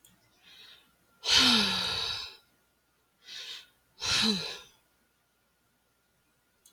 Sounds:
Sigh